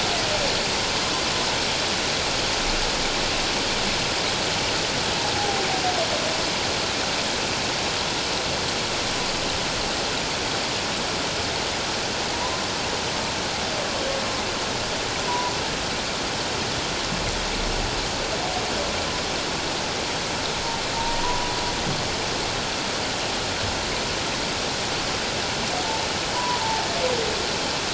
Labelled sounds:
5.4	5.6	humpback whale, 0.78 to 0.88 kHz
12.3	12.6	humpback whale, 0.91 to 1.1 kHz
15.2	15.5	humpback whale, 0.91 to 1.0 kHz
21.2	21.5	humpback whale, 0.94 to 1.0 kHz
26.3	26.6	humpback whale, 0.91 to 1.0 kHz

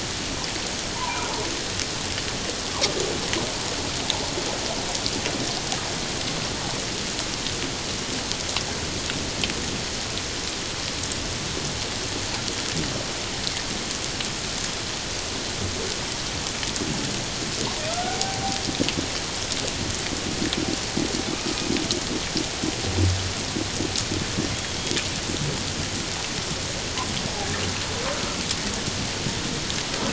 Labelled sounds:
0.9	1.3	humpback whale, 0.78 to 1.1 kHz
18.0	18.6	humpback whale, 0.78 to 0.84 kHz

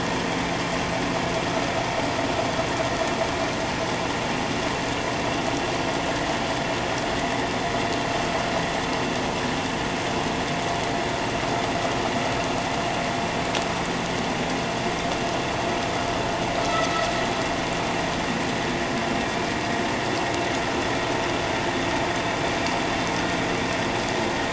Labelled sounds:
16.6	17.1	vessel noise, 1.2 to 1.4 kHz

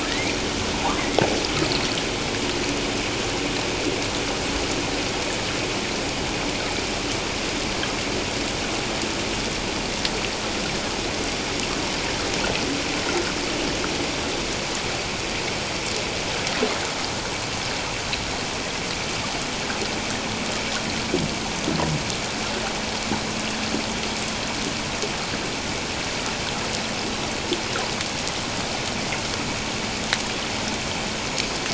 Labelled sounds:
0.0	0.4	humpback whale, 1.7 to 2.4 kHz
0.7	1.0	humpback whale, 0.78 to 1.3 kHz

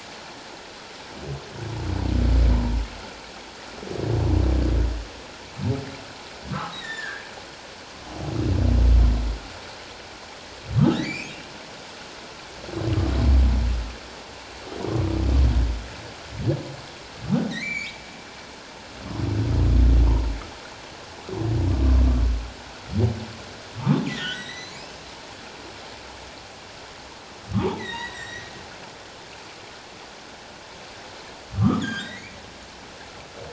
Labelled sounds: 6.5	7.3	humpback whale, 1.0 to 3.9 kHz
10.9	11.4	humpback whale, 1.6 to 2.7 kHz
17.4	18.0	humpback whale, 1.8 to 7.1 kHz
23.8	24.8	humpback whale, 1.0 to 6.1 kHz
27.5	28.5	humpback whale, 0.81 to 5.9 kHz
31.6	32.4	humpback whale, 1.0 to 5.0 kHz

